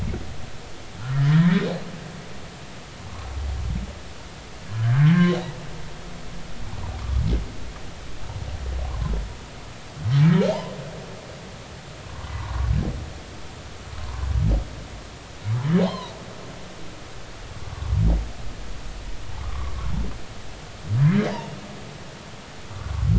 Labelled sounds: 1.1	1.4	humpback whale, 1.6 to 2.0 kHz
4.7	5.3	humpback whale, 1.3 to 1.8 kHz
12.3	12.7	humpback whale, 0.90 to 1.2 kHz
13.9	14.2	humpback whale, 0.86 to 1.2 kHz
15.8	16.2	humpback whale, 0.80 to 4.3 kHz
19.4	19.7	humpback whale, 0.99 to 1.3 kHz

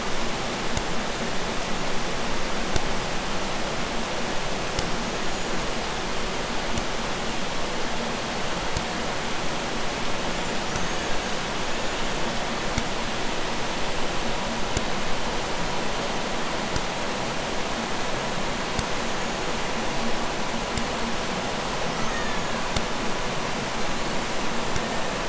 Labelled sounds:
4.9	5.9	killer whale, Bigg's (transient), 5.8 to 7.2 kHz
10.2	12.5	killer whale, Bigg's (transient), 0.71 to 7.5 kHz
21.7	23.0	killer whale, Bigg's (transient), 1.1 to 6.9 kHz
23.7	25.2	killer whale, Bigg's (transient), 1.4 to 7.8 kHz

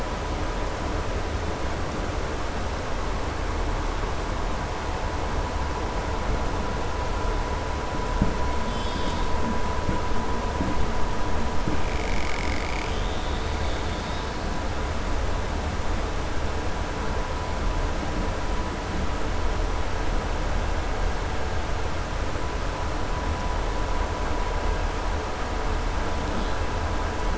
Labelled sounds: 8.6	9.3	killer whale, southern resident, 3.1 to 5.4 kHz

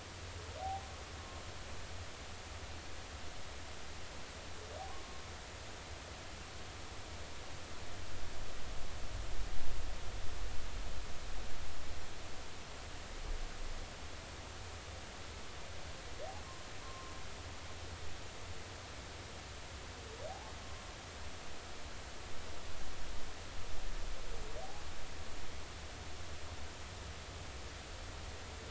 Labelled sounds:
0.6	0.9	humpback whale, 0.80 to 0.86 kHz
16.8	17.1	humpback whale, 1.0 to 1.1 kHz

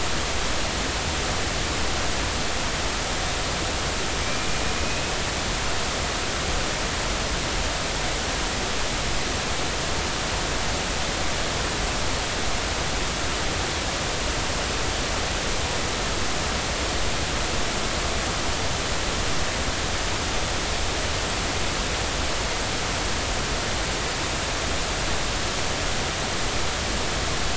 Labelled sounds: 4.2	5.0	killer whale, Bigg's (transient), 2.3 to 2.7 kHz

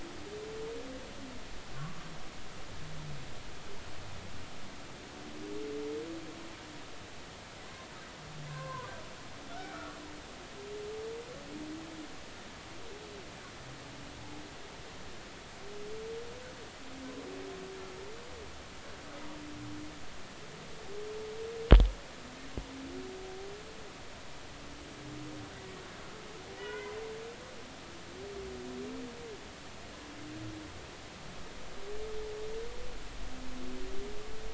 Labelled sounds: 1.7	2.1	humpback whale, 1.0 to 1.2 kHz
8.5	8.9	humpback whale, 1.4 to 1.7 kHz
9.5	10.0	humpback whale, 0.93 to 2.4 kHz
26.6	27.0	humpback whale, 0.93 to 2.1 kHz

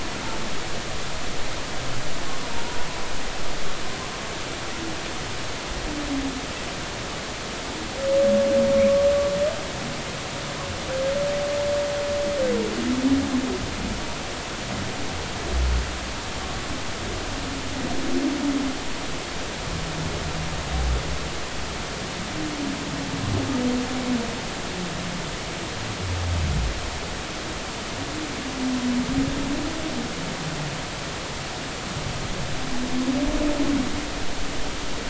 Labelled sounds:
2.5	2.8	humpback whale, 0.90 to 1.0 kHz

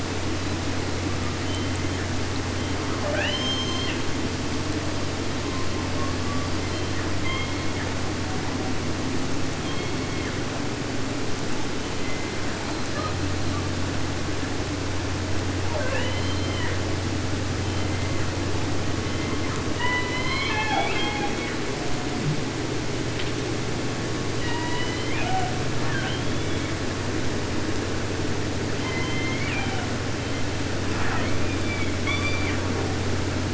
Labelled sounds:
1.0	2.2	killer whale, 0.76 to 3.4 kHz
2.5	3.0	killer whale, 0.67 to 3.4 kHz
2.9	4.0	killer whale, southern resident, J pod, call S44, 0.50 to 7.1 kHz
5.3	8.1	killer whale, 0.47 to 5.0 kHz
9.6	10.7	killer whale, 0.41 to 5.1 kHz
11.8	13.3	killer whale, southern resident, J pod, call S44 and call S42, 0.28 to 4.6 kHz
15.6	16.8	killer whale, southern resident, J pod, call S44, 0.23 to 5.6 kHz
17.5	18.4	killer whale, southern resident, J pod, call S44, 0.76 to 6.0 kHz
18.8	19.7	killer whale, southern resident, J pod, call S44, 0.52 to 4.6 kHz
19.7	21.8	killer whale, southern resident, J pod, call S01, 0.50 to 7.1 kHz
24.3	25.7	killer whale, southern resident, J pod, call S01, 0.50 to 6.3 kHz
25.8	27.0	killer whale, 0.50 to 4.2 kHz
28.8	30.0	killer whale, southern resident, J pod, call S01, 0.50 to 7.1 kHz
30.1	30.5	killer whale, 1.7 to 3.5 kHz
30.8	32.1	killer whale, southern resident, J pod, call S44, 0.50 to 7.1 kHz
32.0	32.7	killer whale, southern resident, 0.74 to 6.4 kHz

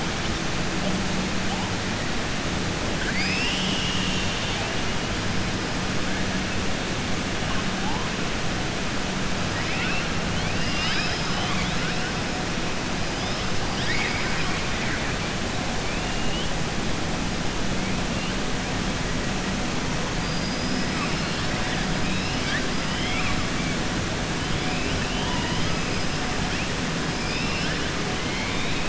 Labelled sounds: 2.9	4.6	killer whale, southern resident, 1.6 to 6.1 kHz
9.5	11.9	killer whale, southern resident, 0.87 to 5.5 kHz
13.6	14.6	killer whale, southern resident, 1.0 to 5.5 kHz
20.1	20.9	killer whale, southern resident, 4.7 to 5.3 kHz
22.0	22.6	killer whale, southern resident, 1.5 to 5.4 kHz
25.0	25.8	killer whale, southern resident, 0.92 to 5.0 kHz

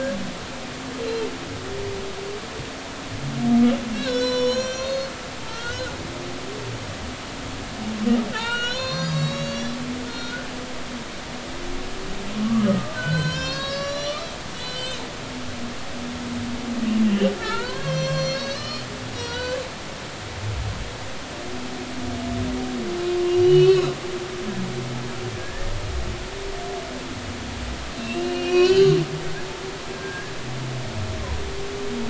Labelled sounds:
1.0	1.3	humpback whale, 2.6 to 2.8 kHz
3.9	5.1	humpback whale, 0.96 to 7.1 kHz
5.5	6.7	humpback whale, 1.3 to 4.4 kHz
8.3	9.8	humpback whale, 0.83 to 7.3 kHz
10.0	10.5	humpback whale, 1.3 to 4.3 kHz
12.4	15.1	humpback whale, 1.0 to 7.4 kHz
17.0	18.9	humpback whale, 0.83 to 7.0 kHz
19.1	19.6	humpback whale, 0.90 to 6.0 kHz
23.2	23.9	humpback whale, 2.5 to 4.3 kHz
25.4	25.7	humpback whale, 1.6 to 1.9 kHz
28.0	29.0	humpback whale, 1.0 to 4.6 kHz
29.9	30.3	humpback whale, 1.5 to 1.8 kHz

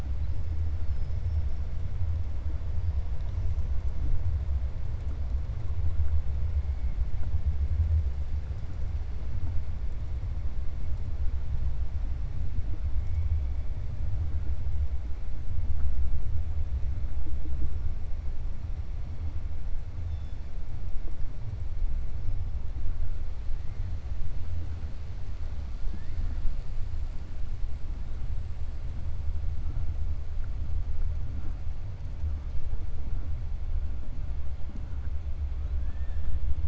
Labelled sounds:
35.7	36.3	killer whale, 1.2 to 3.6 kHz

